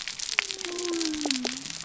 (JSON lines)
{"label": "biophony", "recorder": "SoundTrap 300"}